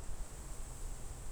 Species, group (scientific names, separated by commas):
Yoyetta celis, Cicadidae